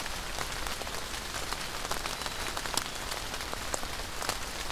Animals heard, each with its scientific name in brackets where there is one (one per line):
Black-capped Chickadee (Poecile atricapillus)